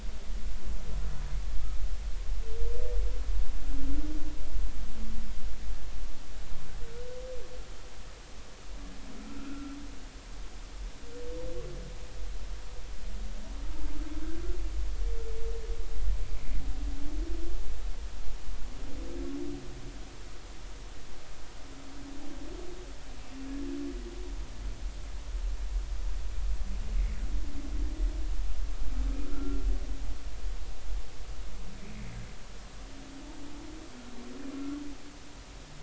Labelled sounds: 9.3	9.7	humpback whale, 1.3 to 1.5 kHz
29.3	29.6	humpback whale, 1.3 to 1.5 kHz

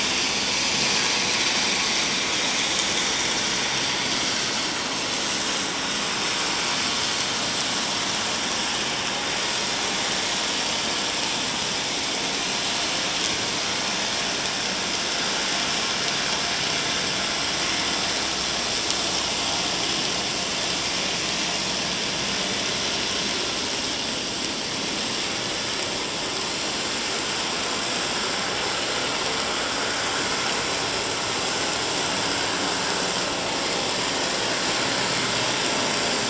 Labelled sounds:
0.2	0.5	vessel noise, 4.2 to 4.6 kHz
2.1	2.4	vessel noise, 6.7 to 6.8 kHz

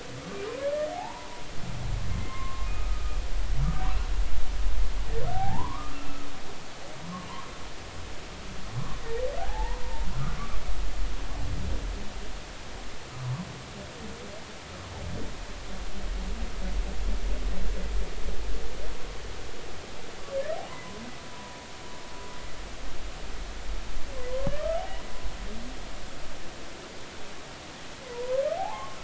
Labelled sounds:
0.9	3.2	humpback whale, 0.80 to 2.2 kHz
5.3	6.2	humpback whale, 0.80 to 2.8 kHz
7.0	7.3	humpback whale, 0.96 to 1.2 kHz
9.4	10.1	humpback whale, 0.80 to 1.1 kHz
20.7	21.6	humpback whale, 0.90 to 1.1 kHz
24.5	24.8	humpback whale, 1.1 to 1.4 kHz
28.1	29.0	humpback whale, 0.80 to 1.2 kHz

